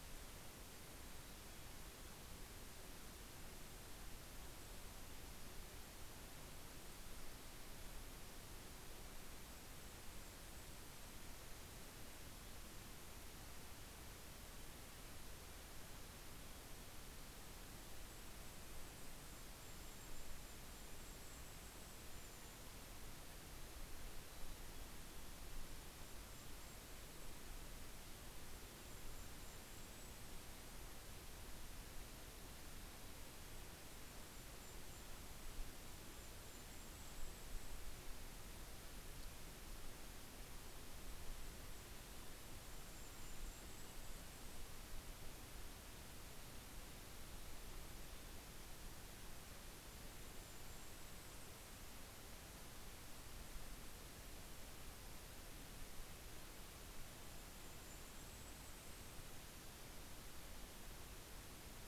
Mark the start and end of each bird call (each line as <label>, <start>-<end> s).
Mountain Chickadee (Poecile gambeli), 0.5-2.9 s
Golden-crowned Kinglet (Regulus satrapa), 7.4-11.9 s
Golden-crowned Kinglet (Regulus satrapa), 16.9-23.0 s
Mountain Chickadee (Poecile gambeli), 24.0-25.7 s
Golden-crowned Kinglet (Regulus satrapa), 24.9-30.9 s
Golden-crowned Kinglet (Regulus satrapa), 33.6-38.8 s
Golden-crowned Kinglet (Regulus satrapa), 40.3-45.3 s
Golden-crowned Kinglet (Regulus satrapa), 48.7-52.7 s
Golden-crowned Kinglet (Regulus satrapa), 56.8-60.1 s